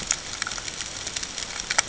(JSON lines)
{"label": "ambient", "recorder": "HydroMoth"}